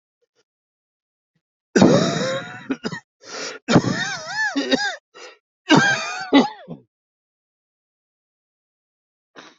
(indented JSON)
{
  "expert_labels": [
    {
      "quality": "good",
      "cough_type": "dry",
      "dyspnea": true,
      "wheezing": true,
      "stridor": false,
      "choking": false,
      "congestion": true,
      "nothing": false,
      "diagnosis": "obstructive lung disease",
      "severity": "severe"
    }
  ],
  "age": 36,
  "gender": "male",
  "respiratory_condition": false,
  "fever_muscle_pain": false,
  "status": "COVID-19"
}